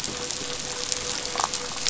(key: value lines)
label: biophony
recorder: SoundTrap 500

label: anthrophony, boat engine
recorder: SoundTrap 500